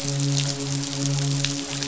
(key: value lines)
label: biophony, midshipman
recorder: SoundTrap 500